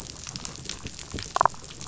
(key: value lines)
label: biophony, damselfish
recorder: SoundTrap 500